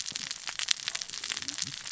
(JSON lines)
{"label": "biophony, cascading saw", "recorder": "SoundTrap 600 or HydroMoth"}